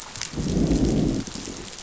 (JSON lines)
{"label": "biophony, growl", "recorder": "SoundTrap 500"}